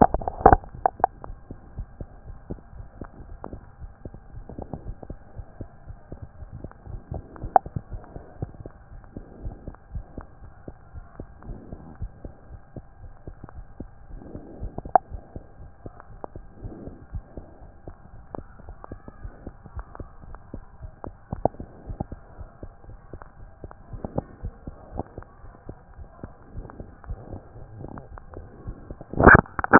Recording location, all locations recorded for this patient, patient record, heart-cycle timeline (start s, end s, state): aortic valve (AV)
aortic valve (AV)+pulmonary valve (PV)+tricuspid valve (TV)+tricuspid valve (TV)+mitral valve (MV)
#Age: Child
#Sex: Male
#Height: 111.0 cm
#Weight: 24.0 kg
#Pregnancy status: False
#Murmur: Absent
#Murmur locations: nan
#Most audible location: nan
#Systolic murmur timing: nan
#Systolic murmur shape: nan
#Systolic murmur grading: nan
#Systolic murmur pitch: nan
#Systolic murmur quality: nan
#Diastolic murmur timing: nan
#Diastolic murmur shape: nan
#Diastolic murmur grading: nan
#Diastolic murmur pitch: nan
#Diastolic murmur quality: nan
#Outcome: Normal
#Campaign: 2014 screening campaign
0.00	8.92	unannotated
8.92	9.02	S1
9.02	9.16	systole
9.16	9.24	S2
9.24	9.42	diastole
9.42	9.56	S1
9.56	9.66	systole
9.66	9.74	S2
9.74	9.92	diastole
9.92	10.04	S1
10.04	10.16	systole
10.16	10.26	S2
10.26	10.44	diastole
10.44	10.54	S1
10.54	10.66	systole
10.66	10.74	S2
10.74	10.94	diastole
10.94	11.04	S1
11.04	11.18	systole
11.18	11.28	S2
11.28	11.46	diastole
11.46	11.58	S1
11.58	11.70	systole
11.70	11.80	S2
11.80	12.00	diastole
12.00	12.12	S1
12.12	12.24	systole
12.24	12.32	S2
12.32	12.50	diastole
12.50	12.60	S1
12.60	12.76	systole
12.76	12.84	S2
12.84	13.02	diastole
13.02	13.12	S1
13.12	13.26	systole
13.26	13.36	S2
13.36	13.56	diastole
13.56	13.66	S1
13.66	13.80	systole
13.80	13.90	S2
13.90	14.10	diastole
14.10	14.22	S1
14.22	14.34	systole
14.34	14.42	S2
14.42	14.60	diastole
14.60	29.79	unannotated